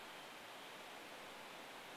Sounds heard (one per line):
Varied Thrush song